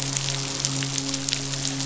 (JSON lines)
{"label": "biophony, midshipman", "recorder": "SoundTrap 500"}